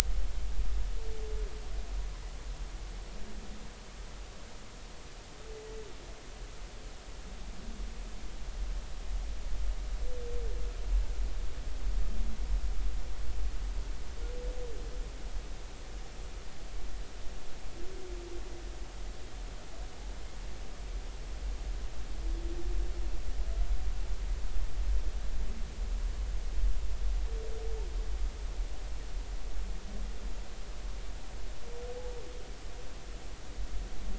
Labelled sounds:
5.5	5.8	humpback whale, 1.9 to 2.0 kHz

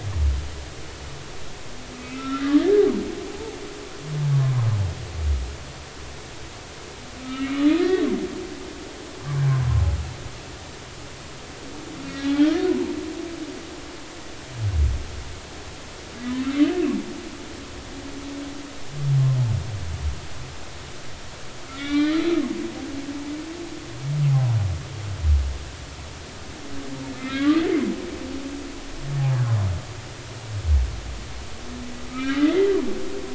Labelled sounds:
2.0	2.6	humpback whale, 1.3 to 2.7 kHz
3.3	3.6	humpback whale, 0.80 to 0.96 kHz
4.3	4.6	humpback whale, 0.96 to 1.2 kHz
7.2	7.5	humpback whale, 1.2 to 1.4 kHz
7.8	8.1	humpback whale, 1.4 to 2.0 kHz
12.1	12.9	humpback whale, 0.83 to 3.9 kHz
16.2	16.4	humpback whale, 1.6 to 1.9 kHz
21.7	22.2	humpback whale, 1.1 to 4.2 kHz
27.1	27.7	humpback whale, 1.2 to 2.5 kHz
32.1	32.8	humpback whale, 1.2 to 3.0 kHz

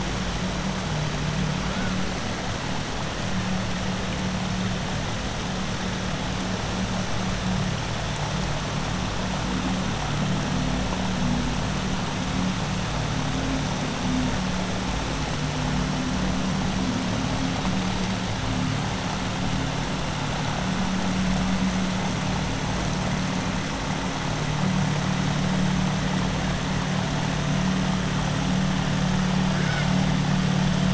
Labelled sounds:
29.5	29.9	killer whale, southern resident, 1.3 to 3.2 kHz

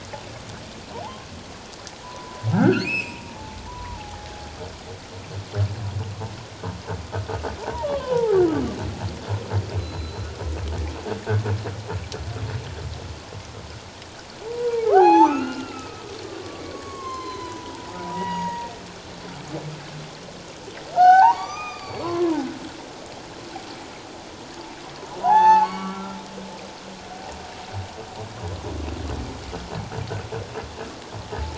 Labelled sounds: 1.0	1.3	humpback whale, 0.78 to 1.1 kHz
2.0	4.3	humpback whale, 0.78 to 2.8 kHz
7.6	8.4	humpback whale, 0.78 to 3.5 kHz
9.8	10.3	humpback whale, 4.0 to 4.2 kHz
14.4	16.0	humpback whale, 0.78 to 6.2 kHz
16.7	18.7	humpback whale, 0.84 to 7.5 kHz
20.9	22.5	humpback whale, 0.78 to 6.2 kHz
25.2	26.2	humpback whale, 0.78 to 6.2 kHz

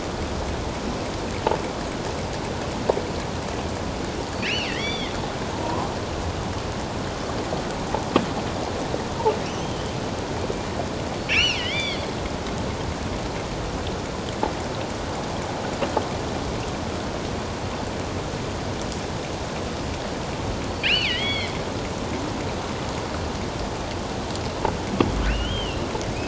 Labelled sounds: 4.4	5.1	killer whale, offshore, 1.8 to 5.9 kHz
5.5	5.9	killer whale, offshore, 0.88 to 1.1 kHz
9.5	9.7	killer whale, offshore, 2.5 to 3.3 kHz
11.3	12.1	killer whale, offshore, 1.9 to 6.0 kHz
20.8	21.5	killer whale, offshore, 1.9 to 4.6 kHz
25.3	25.9	killer whale, offshore, 2.4 to 3.3 kHz

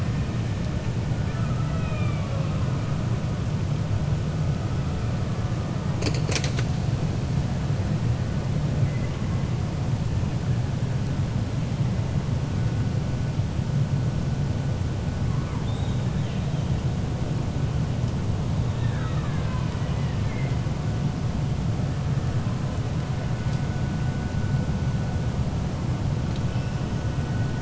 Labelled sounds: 1.2	2.4	killer whale, 0.56 to 3.7 kHz
18.7	20.6	killer whale, 0.98 to 3.0 kHz

